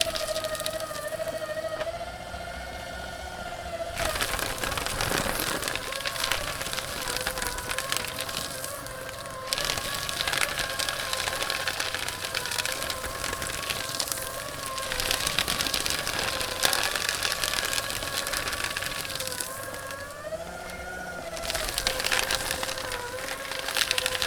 Is it an electric bike?
no